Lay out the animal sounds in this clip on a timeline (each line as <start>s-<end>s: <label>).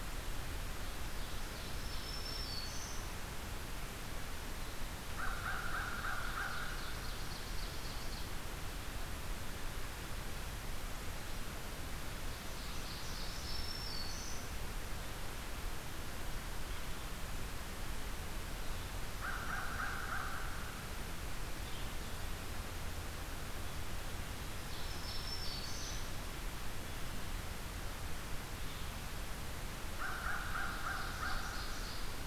0.0s-29.3s: Red-eyed Vireo (Vireo olivaceus)
0.5s-2.4s: Ovenbird (Seiurus aurocapilla)
1.6s-3.1s: Black-throated Green Warbler (Setophaga virens)
4.4s-8.4s: Ovenbird (Seiurus aurocapilla)
4.9s-6.7s: American Crow (Corvus brachyrhynchos)
12.3s-13.7s: Ovenbird (Seiurus aurocapilla)
13.2s-14.4s: Black-throated Green Warbler (Setophaga virens)
19.1s-20.5s: American Crow (Corvus brachyrhynchos)
24.5s-26.2s: Black-throated Green Warbler (Setophaga virens)
24.6s-26.0s: Ovenbird (Seiurus aurocapilla)
29.7s-32.3s: Ovenbird (Seiurus aurocapilla)
30.0s-31.9s: American Crow (Corvus brachyrhynchos)